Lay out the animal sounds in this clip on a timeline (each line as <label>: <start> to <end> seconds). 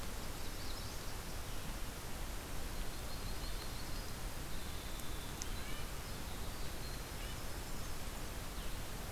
Magnolia Warbler (Setophaga magnolia): 0.0 to 1.3 seconds
Yellow-rumped Warbler (Setophaga coronata): 2.4 to 4.2 seconds
Winter Wren (Troglodytes hiemalis): 4.2 to 8.8 seconds
Red-breasted Nuthatch (Sitta canadensis): 5.3 to 7.5 seconds